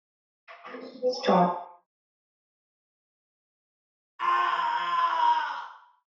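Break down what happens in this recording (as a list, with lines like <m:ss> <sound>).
0:01 someone says "Stop!"
0:04 someone screams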